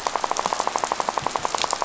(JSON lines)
{"label": "biophony, rattle", "recorder": "SoundTrap 500"}